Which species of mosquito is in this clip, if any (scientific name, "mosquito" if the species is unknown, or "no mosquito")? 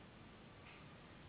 Anopheles gambiae s.s.